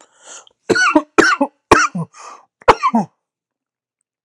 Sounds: Cough